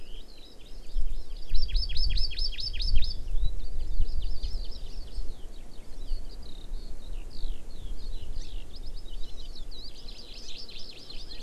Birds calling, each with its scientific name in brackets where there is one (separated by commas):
Eurasian Skylark (Alauda arvensis), Hawaii Amakihi (Chlorodrepanis virens)